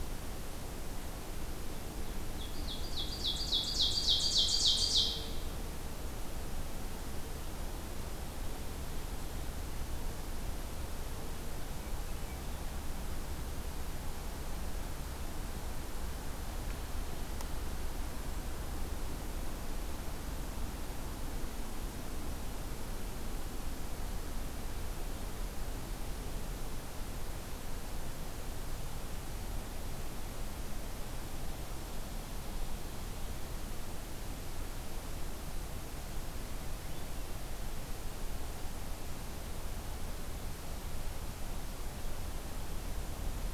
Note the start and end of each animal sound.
[2.21, 5.46] Ovenbird (Seiurus aurocapilla)

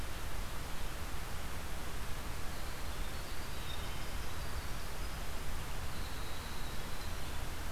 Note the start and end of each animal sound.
[2.30, 7.55] Winter Wren (Troglodytes hiemalis)

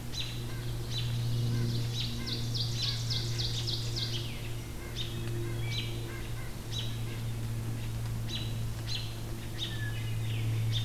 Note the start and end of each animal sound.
[0.01, 0.32] American Robin (Turdus migratorius)
[0.81, 1.12] American Robin (Turdus migratorius)
[1.41, 3.08] White-breasted Nuthatch (Sitta carolinensis)
[1.42, 4.38] Ovenbird (Seiurus aurocapilla)
[4.75, 7.25] White-breasted Nuthatch (Sitta carolinensis)
[4.90, 5.14] American Robin (Turdus migratorius)
[5.67, 5.88] American Robin (Turdus migratorius)
[6.60, 6.96] American Robin (Turdus migratorius)
[8.19, 8.47] American Robin (Turdus migratorius)
[8.77, 9.16] American Robin (Turdus migratorius)
[9.51, 9.70] American Robin (Turdus migratorius)
[9.52, 10.32] Hermit Thrush (Catharus guttatus)
[10.61, 10.85] American Robin (Turdus migratorius)

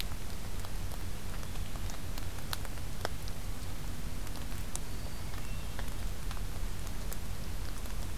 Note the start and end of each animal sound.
[4.71, 5.40] Black-throated Green Warbler (Setophaga virens)
[5.08, 5.96] Hermit Thrush (Catharus guttatus)

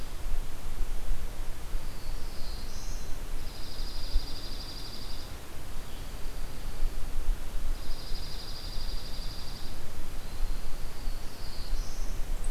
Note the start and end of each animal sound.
[1.72, 3.12] Black-throated Blue Warbler (Setophaga caerulescens)
[3.34, 5.45] Dark-eyed Junco (Junco hyemalis)
[5.71, 7.04] Dark-eyed Junco (Junco hyemalis)
[7.67, 11.40] Dark-eyed Junco (Junco hyemalis)
[10.87, 12.20] Black-throated Blue Warbler (Setophaga caerulescens)

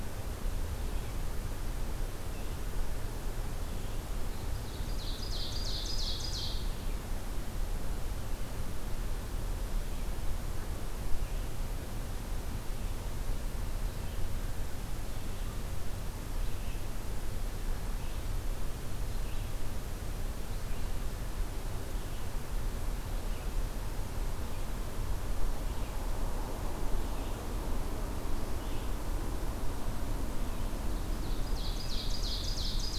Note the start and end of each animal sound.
[4.73, 6.74] Ovenbird (Seiurus aurocapilla)
[10.98, 11.64] Red-eyed Vireo (Vireo olivaceus)
[16.24, 21.22] Red-eyed Vireo (Vireo olivaceus)
[26.88, 28.98] Red-eyed Vireo (Vireo olivaceus)
[30.85, 32.98] Ovenbird (Seiurus aurocapilla)

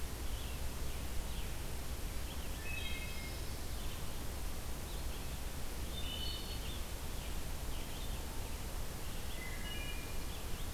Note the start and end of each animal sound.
[0.00, 10.74] Red-eyed Vireo (Vireo olivaceus)
[2.52, 3.50] Wood Thrush (Hylocichla mustelina)
[5.88, 6.67] Wood Thrush (Hylocichla mustelina)
[9.27, 10.24] Wood Thrush (Hylocichla mustelina)

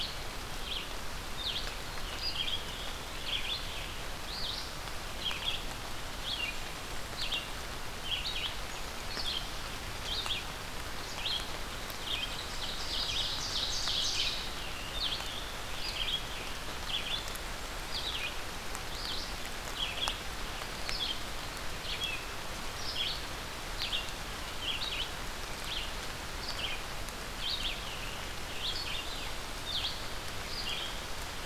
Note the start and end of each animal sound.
[0.00, 31.46] Red-eyed Vireo (Vireo olivaceus)
[6.30, 7.68] Blackburnian Warbler (Setophaga fusca)
[12.33, 14.40] Ovenbird (Seiurus aurocapilla)

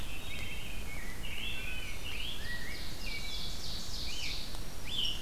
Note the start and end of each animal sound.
[0.00, 0.65] Wood Thrush (Hylocichla mustelina)
[0.22, 2.81] Rose-breasted Grosbeak (Pheucticus ludovicianus)
[1.24, 1.90] Wood Thrush (Hylocichla mustelina)
[1.76, 4.66] Ovenbird (Seiurus aurocapilla)
[2.85, 3.67] Wood Thrush (Hylocichla mustelina)
[3.93, 5.22] Scarlet Tanager (Piranga olivacea)
[4.36, 5.22] Black-throated Green Warbler (Setophaga virens)

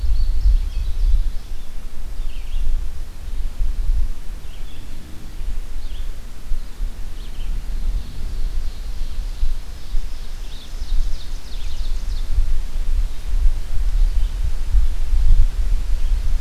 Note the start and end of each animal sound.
[0.00, 1.58] Indigo Bunting (Passerina cyanea)
[0.00, 16.41] Red-eyed Vireo (Vireo olivaceus)
[8.01, 10.04] Ovenbird (Seiurus aurocapilla)
[10.36, 12.46] Ovenbird (Seiurus aurocapilla)

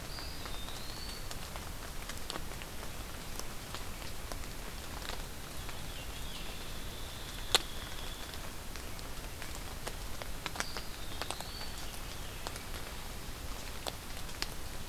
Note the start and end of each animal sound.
[0.00, 1.27] Eastern Wood-Pewee (Contopus virens)
[5.83, 6.57] Veery (Catharus fuscescens)
[6.50, 8.53] Hairy Woodpecker (Dryobates villosus)
[10.47, 11.73] Eastern Wood-Pewee (Contopus virens)

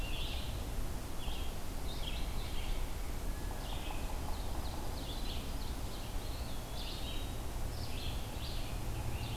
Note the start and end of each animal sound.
[0.00, 9.37] Red-eyed Vireo (Vireo olivaceus)
[4.04, 6.08] Ovenbird (Seiurus aurocapilla)
[5.98, 7.44] Eastern Wood-Pewee (Contopus virens)

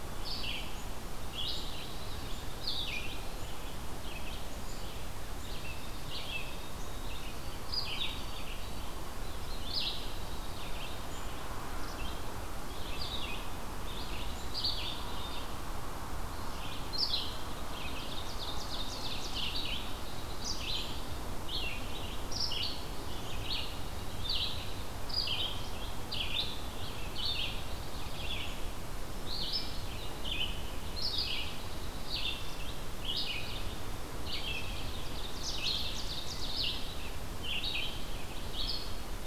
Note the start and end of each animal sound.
[0.00, 39.26] Red-eyed Vireo (Vireo olivaceus)
[1.38, 2.75] Dark-eyed Junco (Junco hyemalis)
[5.61, 8.90] White-throated Sparrow (Zonotrichia albicollis)
[9.47, 11.09] Dark-eyed Junco (Junco hyemalis)
[17.46, 19.59] Ovenbird (Seiurus aurocapilla)
[19.70, 21.06] Dark-eyed Junco (Junco hyemalis)
[27.29, 28.45] Dark-eyed Junco (Junco hyemalis)
[31.31, 32.45] Dark-eyed Junco (Junco hyemalis)
[34.47, 36.74] Ovenbird (Seiurus aurocapilla)

